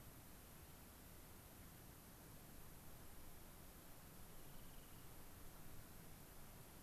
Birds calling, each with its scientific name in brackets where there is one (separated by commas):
Rock Wren (Salpinctes obsoletus)